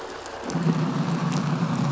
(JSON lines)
{"label": "anthrophony, boat engine", "recorder": "SoundTrap 500"}